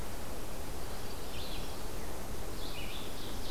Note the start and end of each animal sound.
0.0s-3.5s: Red-eyed Vireo (Vireo olivaceus)
0.5s-1.9s: Common Yellowthroat (Geothlypis trichas)
2.5s-3.5s: Ovenbird (Seiurus aurocapilla)

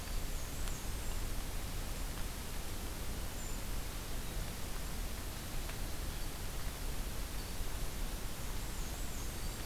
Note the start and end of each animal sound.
0.0s-1.2s: Black-and-white Warbler (Mniotilta varia)
3.3s-3.6s: Brown Creeper (Certhia americana)
8.4s-9.7s: Black-and-white Warbler (Mniotilta varia)

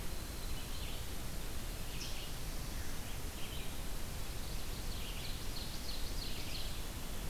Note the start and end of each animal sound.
0.0s-3.6s: Winter Wren (Troglodytes hiemalis)
3.2s-7.3s: Red-eyed Vireo (Vireo olivaceus)
4.1s-5.5s: Chestnut-sided Warbler (Setophaga pensylvanica)
4.6s-7.0s: Ovenbird (Seiurus aurocapilla)

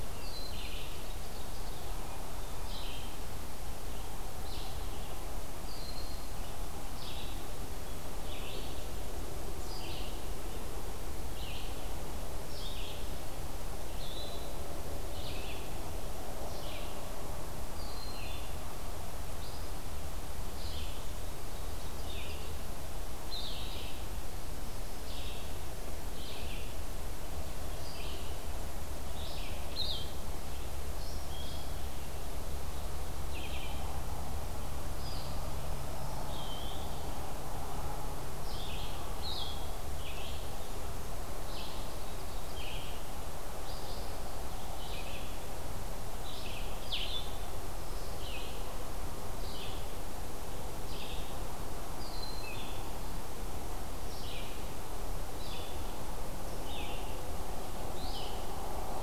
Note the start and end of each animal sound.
0.0s-58.4s: Red-eyed Vireo (Vireo olivaceus)
0.0s-2.0s: Ovenbird (Seiurus aurocapilla)
5.4s-6.4s: Broad-winged Hawk (Buteo platypterus)
17.6s-18.6s: Broad-winged Hawk (Buteo platypterus)
29.7s-47.3s: Blue-headed Vireo (Vireo solitarius)
36.2s-36.9s: Eastern Wood-Pewee (Contopus virens)
51.8s-52.5s: Broad-winged Hawk (Buteo platypterus)

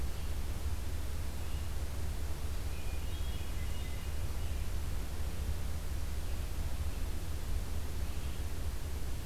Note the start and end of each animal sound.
0.0s-9.3s: Red-eyed Vireo (Vireo olivaceus)
2.7s-4.2s: Hermit Thrush (Catharus guttatus)

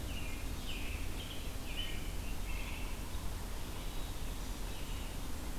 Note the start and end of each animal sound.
0.0s-2.9s: American Robin (Turdus migratorius)
2.4s-5.6s: Yellow-bellied Sapsucker (Sphyrapicus varius)

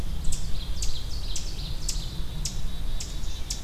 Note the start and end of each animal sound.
0.0s-3.6s: Ovenbird (Seiurus aurocapilla)
0.0s-3.6s: Red-eyed Vireo (Vireo olivaceus)
1.9s-3.6s: Black-capped Chickadee (Poecile atricapillus)

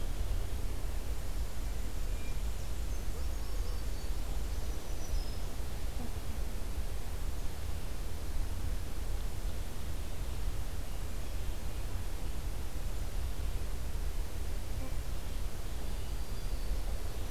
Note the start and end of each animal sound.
0.6s-4.4s: Black-and-white Warbler (Mniotilta varia)
2.9s-4.2s: Yellow-rumped Warbler (Setophaga coronata)
4.4s-5.6s: Black-throated Green Warbler (Setophaga virens)
15.7s-16.9s: Black-throated Green Warbler (Setophaga virens)

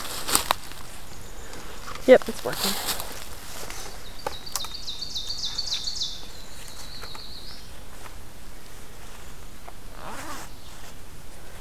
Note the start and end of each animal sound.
1.0s-1.7s: Black-capped Chickadee (Poecile atricapillus)
3.7s-6.2s: Ovenbird (Seiurus aurocapilla)
6.0s-7.8s: Black-throated Blue Warbler (Setophaga caerulescens)

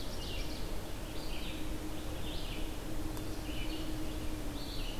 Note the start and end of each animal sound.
0.0s-0.8s: Ovenbird (Seiurus aurocapilla)
0.0s-5.0s: Red-eyed Vireo (Vireo olivaceus)

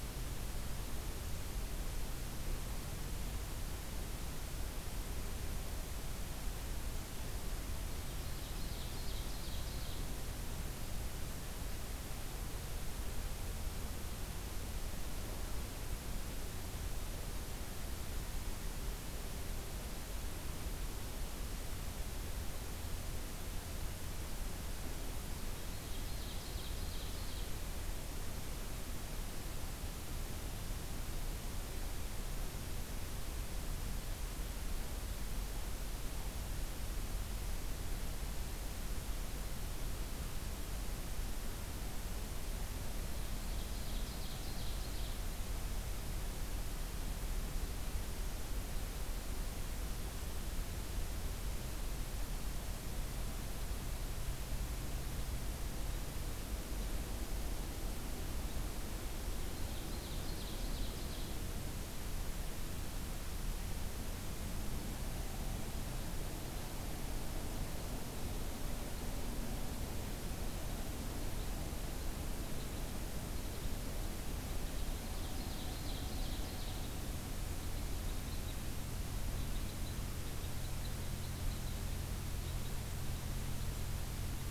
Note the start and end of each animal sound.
8.2s-10.1s: Ovenbird (Seiurus aurocapilla)
25.7s-27.5s: Ovenbird (Seiurus aurocapilla)
43.1s-45.2s: Ovenbird (Seiurus aurocapilla)
59.5s-61.4s: Ovenbird (Seiurus aurocapilla)
72.3s-83.9s: Red Crossbill (Loxia curvirostra)
75.0s-76.9s: Ovenbird (Seiurus aurocapilla)

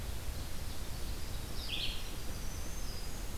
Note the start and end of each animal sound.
0.0s-1.7s: Ovenbird (Seiurus aurocapilla)
0.0s-3.4s: Red-eyed Vireo (Vireo olivaceus)
1.9s-3.4s: Winter Wren (Troglodytes hiemalis)
1.9s-3.4s: Black-throated Green Warbler (Setophaga virens)

